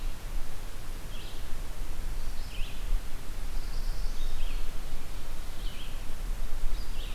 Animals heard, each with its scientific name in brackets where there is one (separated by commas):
Pine Warbler (Setophaga pinus), Red-eyed Vireo (Vireo olivaceus)